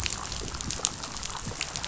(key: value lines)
label: biophony, chatter
recorder: SoundTrap 500